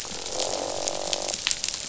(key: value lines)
label: biophony, croak
recorder: SoundTrap 500